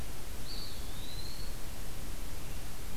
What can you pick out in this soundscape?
Eastern Wood-Pewee